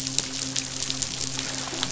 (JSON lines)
{"label": "biophony, midshipman", "recorder": "SoundTrap 500"}